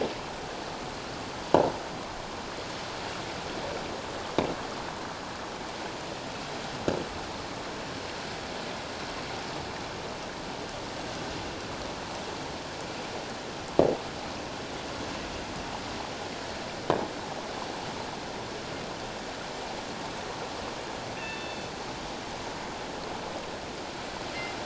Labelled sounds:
21.2	21.7	killer whale, northern resident, G clan, 1.7 to 3.6 kHz

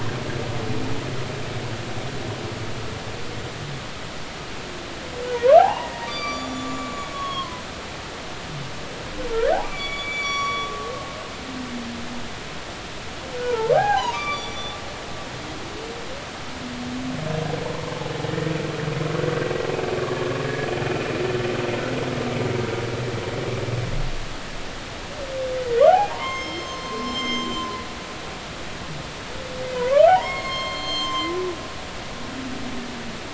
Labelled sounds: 5.3	7.6	humpback whale, 0.80 to 7.0 kHz
9.3	10.7	humpback whale, 1.1 to 8.0 kHz
13.4	14.7	humpback whale, 0.80 to 5.9 kHz
20.4	20.7	humpback whale, 1.6 to 1.9 kHz
25.9	27.8	humpback whale, 0.80 to 7.4 kHz
30.1	31.3	humpback whale, 0.80 to 6.6 kHz

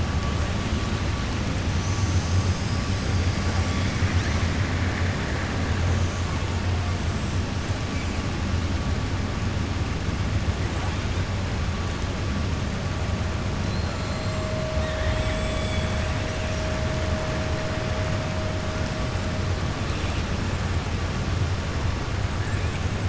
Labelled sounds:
13.6	14.3	killer whale, 4.0 to 4.3 kHz
14.7	16.2	killer whale, 1.6 to 3.8 kHz

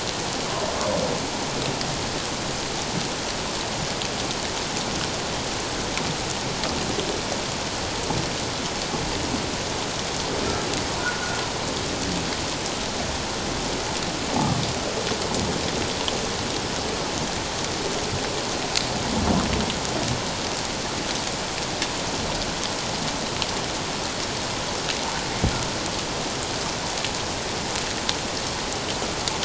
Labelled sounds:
11.0	11.4	humpback whale, 1.4 to 1.5 kHz

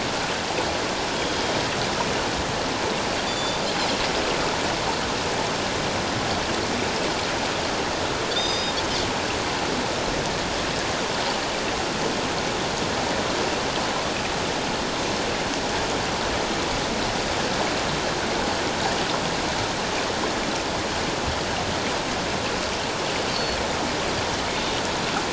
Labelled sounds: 1.2	1.5	Pacific white-sided dolphin, 3.2 to 5.0 kHz
3.3	3.6	Pacific white-sided dolphin, 3.4 to 7.1 kHz
8.3	8.7	Pacific white-sided dolphin, 3.3 to 6.2 kHz
23.3	23.6	Pacific white-sided dolphin, 4.2 to 4.5 kHz

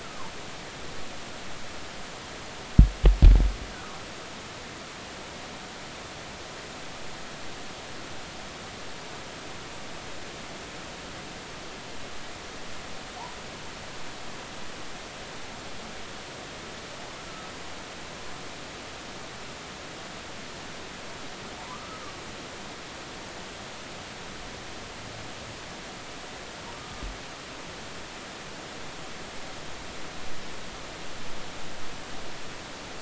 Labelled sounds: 0.0	0.3	humpback whale, 0.83 to 1.5 kHz
21.7	22.2	humpback whale, 1.1 to 1.3 kHz
26.7	27.0	humpback whale, 1.1 to 1.3 kHz

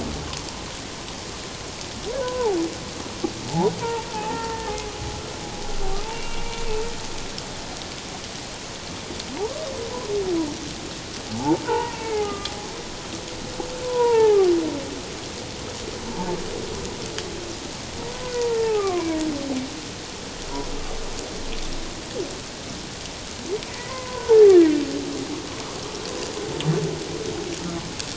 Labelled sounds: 2.2	2.6	humpback whale, 0.78 to 1.1 kHz
3.4	4.6	humpback whale, 0.78 to 1.4 kHz
6.1	6.6	humpback whale, 2.2 to 2.8 kHz
11.3	12.5	humpback whale, 0.78 to 2.3 kHz
13.8	14.5	humpback whale, 0.78 to 2.4 kHz
18.3	19.1	humpback whale, 0.78 to 2.1 kHz
23.9	24.8	humpback whale, 0.78 to 2.0 kHz

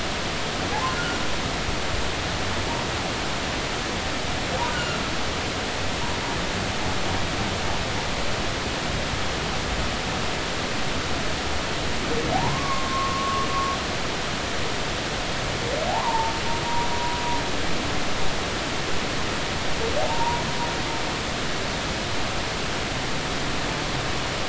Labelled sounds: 0.9	1.2	humpback whale, 1.3 to 1.5 kHz
4.7	5.0	humpback whale, 1.3 to 1.5 kHz
12.3	13.5	humpback whale, 0.80 to 1.2 kHz
15.9	16.3	humpback whale, 0.80 to 1.2 kHz
20.0	20.5	humpback whale, 0.80 to 1.1 kHz

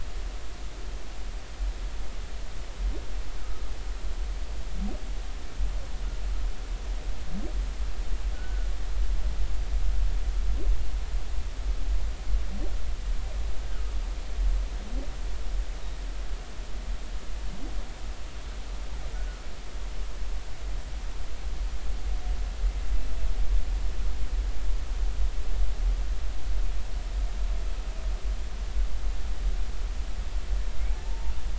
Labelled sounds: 3.4	3.6	humpback whale, 1.2 to 1.5 kHz
8.3	8.7	humpback whale, 1.4 to 1.6 kHz
19.1	19.4	humpback whale, 1.4 to 1.5 kHz
31.1	31.3	humpback whale, 0.86 to 0.99 kHz

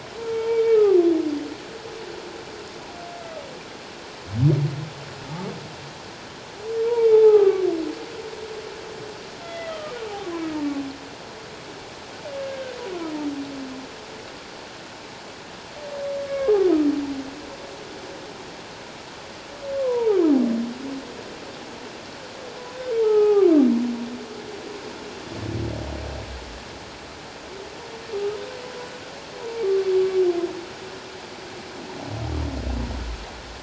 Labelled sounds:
0.2	1.0	humpback whale, 0.84 to 3.2 kHz
7.1	7.7	humpback whale, 0.78 to 1.3 kHz
9.4	10.0	humpback whale, 1.1 to 2.1 kHz
12.4	12.8	humpback whale, 1.5 to 1.7 kHz
16.3	16.6	humpback whale, 1.0 to 1.7 kHz
19.7	20.2	humpback whale, 0.78 to 1.1 kHz
23.0	23.5	humpback whale, 0.78 to 1.4 kHz

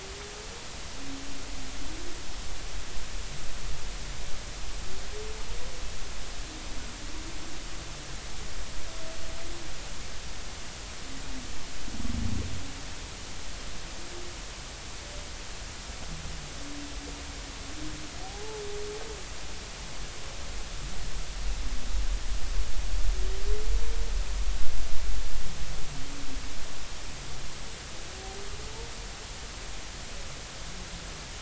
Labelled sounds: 18.2	18.6	humpback whale, 0.80 to 0.93 kHz

